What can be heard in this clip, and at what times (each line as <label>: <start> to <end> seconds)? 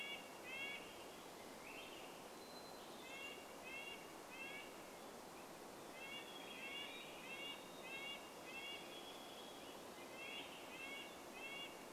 Swainson's Thrush song: 0 to 2 seconds
Red-breasted Nuthatch song: 0 to 12 seconds
Chestnut-backed Chickadee call: 2 to 4 seconds
Hermit Thrush song: 2 to 4 seconds
Varied Thrush song: 6 to 10 seconds
Swainson's Thrush song: 6 to 12 seconds